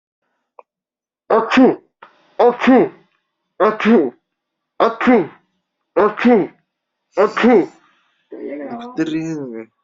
{"expert_labels": [{"quality": "no cough present", "cough_type": "unknown", "dyspnea": false, "wheezing": false, "stridor": false, "choking": false, "congestion": false, "nothing": true, "diagnosis": "healthy cough", "severity": "pseudocough/healthy cough"}]}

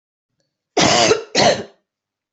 {"expert_labels": [{"quality": "good", "cough_type": "wet", "dyspnea": false, "wheezing": false, "stridor": false, "choking": false, "congestion": false, "nothing": true, "diagnosis": "lower respiratory tract infection", "severity": "mild"}]}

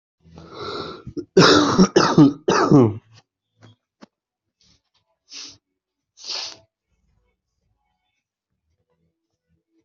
{"expert_labels": [{"quality": "ok", "cough_type": "wet", "dyspnea": false, "wheezing": false, "stridor": false, "choking": false, "congestion": true, "nothing": false, "diagnosis": "upper respiratory tract infection", "severity": "mild"}], "age": 42, "gender": "female", "respiratory_condition": false, "fever_muscle_pain": false, "status": "healthy"}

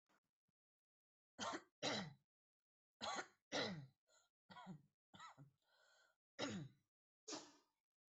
{"expert_labels": [{"quality": "poor", "cough_type": "dry", "dyspnea": false, "wheezing": false, "stridor": false, "choking": false, "congestion": false, "nothing": true, "diagnosis": "upper respiratory tract infection", "severity": "unknown"}], "age": 34, "gender": "female", "respiratory_condition": true, "fever_muscle_pain": false, "status": "healthy"}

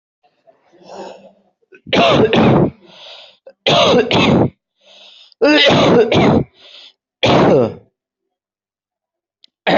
{"expert_labels": [{"quality": "good", "cough_type": "wet", "dyspnea": false, "wheezing": false, "stridor": false, "choking": false, "congestion": false, "nothing": true, "diagnosis": "lower respiratory tract infection", "severity": "mild"}], "age": 37, "gender": "male", "respiratory_condition": false, "fever_muscle_pain": false, "status": "symptomatic"}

